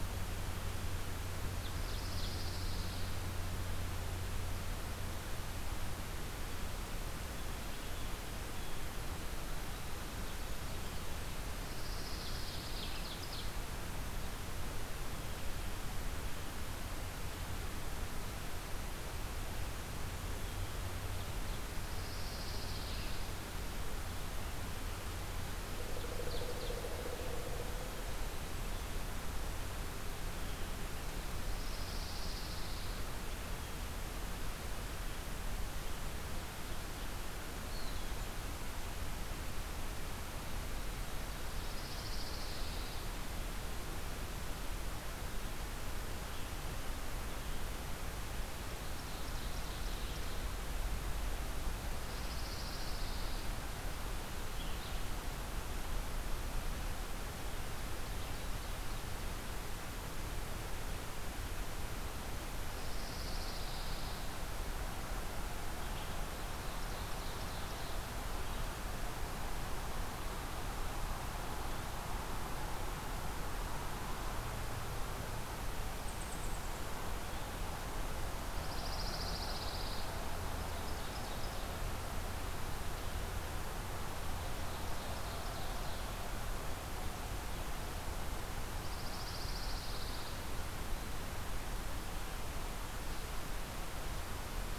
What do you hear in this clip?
Pine Warbler, Ovenbird, Pileated Woodpecker, Eastern Wood-Pewee, Red-eyed Vireo